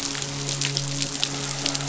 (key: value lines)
label: biophony, midshipman
recorder: SoundTrap 500